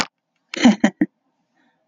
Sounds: Laughter